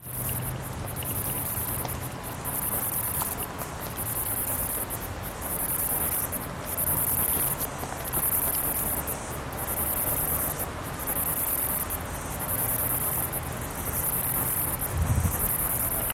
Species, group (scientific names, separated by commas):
Myopsalta mackinlayi, Cicadidae